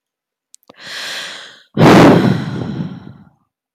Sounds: Sigh